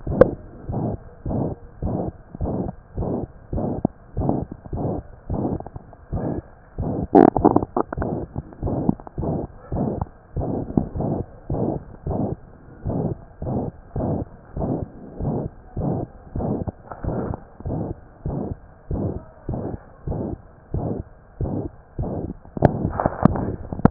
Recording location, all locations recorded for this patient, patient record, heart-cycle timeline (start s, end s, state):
mitral valve (MV)
aortic valve (AV)+pulmonary valve (PV)+tricuspid valve (TV)+mitral valve (MV)
#Age: Child
#Sex: Female
#Height: 117.0 cm
#Weight: 20.8 kg
#Pregnancy status: False
#Murmur: Present
#Murmur locations: aortic valve (AV)+mitral valve (MV)+pulmonary valve (PV)+tricuspid valve (TV)
#Most audible location: tricuspid valve (TV)
#Systolic murmur timing: Holosystolic
#Systolic murmur shape: Plateau
#Systolic murmur grading: III/VI or higher
#Systolic murmur pitch: High
#Systolic murmur quality: Harsh
#Diastolic murmur timing: nan
#Diastolic murmur shape: nan
#Diastolic murmur grading: nan
#Diastolic murmur pitch: nan
#Diastolic murmur quality: nan
#Outcome: Abnormal
#Campaign: 2015 screening campaign
0.00	12.80	unannotated
12.80	12.94	S1
12.94	13.06	systole
13.06	13.18	S2
13.18	13.40	diastole
13.40	13.49	S1
13.49	13.63	systole
13.63	13.76	S2
13.76	13.93	diastole
13.93	14.02	S1
14.02	14.17	systole
14.17	14.28	S2
14.28	14.54	diastole
14.54	14.64	S1
14.64	14.80	systole
14.80	14.90	S2
14.90	15.18	diastole
15.18	15.28	S1
15.28	15.43	systole
15.43	15.52	S2
15.52	15.75	diastole
15.75	15.84	S1
15.84	15.98	systole
15.98	16.10	S2
16.10	16.33	diastole
16.33	16.43	S1
16.43	16.58	systole
16.58	16.66	S2
16.66	17.01	diastole
17.01	17.12	S1
17.12	17.28	systole
17.28	17.38	S2
17.38	17.63	diastole
17.63	17.76	S1
17.76	17.88	systole
17.88	17.98	S2
17.98	18.23	diastole
18.23	18.35	S1
18.35	18.46	systole
18.46	18.58	S2
18.58	18.89	diastole
18.89	18.99	S1
18.99	19.12	systole
19.12	19.24	S2
19.24	19.47	diastole
19.47	19.58	S1
19.58	19.70	systole
19.70	19.80	S2
19.80	20.05	diastole
20.05	20.18	S1
20.18	20.29	systole
20.29	20.40	S2
20.40	20.71	diastole
20.71	20.84	S1
20.84	20.96	systole
20.96	21.05	S2
21.05	21.38	diastole
21.38	21.49	S1
21.49	21.61	systole
21.61	21.72	S2
21.72	23.90	unannotated